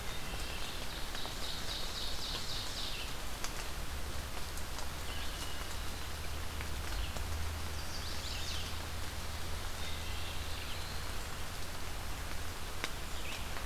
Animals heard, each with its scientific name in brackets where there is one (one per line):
Black-throated Blue Warbler (Setophaga caerulescens)
Red-eyed Vireo (Vireo olivaceus)
Ovenbird (Seiurus aurocapilla)
Chestnut-sided Warbler (Setophaga pensylvanica)
Wood Thrush (Hylocichla mustelina)